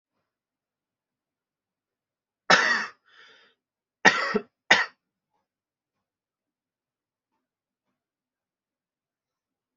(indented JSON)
{
  "expert_labels": [
    {
      "quality": "good",
      "cough_type": "dry",
      "dyspnea": false,
      "wheezing": false,
      "stridor": false,
      "choking": false,
      "congestion": false,
      "nothing": true,
      "diagnosis": "upper respiratory tract infection",
      "severity": "mild"
    }
  ],
  "age": 22,
  "gender": "male",
  "respiratory_condition": false,
  "fever_muscle_pain": false,
  "status": "symptomatic"
}